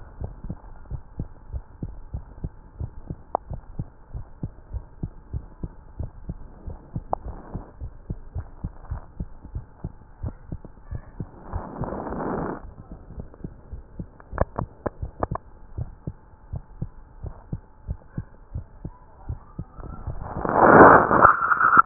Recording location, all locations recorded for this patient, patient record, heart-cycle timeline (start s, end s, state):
tricuspid valve (TV)
aortic valve (AV)+pulmonary valve (PV)+tricuspid valve (TV)+mitral valve (MV)
#Age: Child
#Sex: Female
#Height: 120.0 cm
#Weight: 23.9 kg
#Pregnancy status: False
#Murmur: Absent
#Murmur locations: nan
#Most audible location: nan
#Systolic murmur timing: nan
#Systolic murmur shape: nan
#Systolic murmur grading: nan
#Systolic murmur pitch: nan
#Systolic murmur quality: nan
#Diastolic murmur timing: nan
#Diastolic murmur shape: nan
#Diastolic murmur grading: nan
#Diastolic murmur pitch: nan
#Diastolic murmur quality: nan
#Outcome: Normal
#Campaign: 2015 screening campaign
0.00	0.66	unannotated
0.66	0.90	diastole
0.90	1.04	S1
1.04	1.14	systole
1.14	1.28	S2
1.28	1.50	diastole
1.50	1.66	S1
1.66	1.78	systole
1.78	1.94	S2
1.94	2.12	diastole
2.12	2.26	S1
2.26	2.40	systole
2.40	2.52	S2
2.52	2.76	diastole
2.76	2.92	S1
2.92	3.04	systole
3.04	3.18	S2
3.18	3.44	diastole
3.44	3.62	S1
3.62	3.76	systole
3.76	3.88	S2
3.88	4.12	diastole
4.12	4.28	S1
4.28	4.40	systole
4.40	4.52	S2
4.52	4.70	diastole
4.70	4.86	S1
4.86	4.96	systole
4.96	5.10	S2
5.10	5.30	diastole
5.30	5.44	S1
5.44	5.56	systole
5.56	5.72	S2
5.72	5.94	diastole
5.94	6.12	S1
6.12	6.26	systole
6.26	6.40	S2
6.40	6.64	diastole
6.64	6.78	S1
6.78	6.90	systole
6.90	7.04	S2
7.04	7.24	diastole
7.24	7.40	S1
7.40	7.52	systole
7.52	7.62	S2
7.62	7.80	diastole
7.80	7.94	S1
7.94	8.08	systole
8.08	8.20	S2
8.20	8.36	diastole
8.36	8.48	S1
8.48	8.58	systole
8.58	8.72	S2
8.72	8.92	diastole
8.92	9.04	S1
9.04	9.18	systole
9.18	9.32	S2
9.32	9.52	diastole
9.52	9.68	S1
9.68	9.82	systole
9.82	9.92	S2
9.92	10.18	diastole
10.18	10.36	S1
10.36	10.50	systole
10.50	10.62	S2
10.62	10.86	diastole
10.86	11.02	S1
11.02	11.16	systole
11.16	11.28	S2
11.28	11.50	diastole
11.50	21.86	unannotated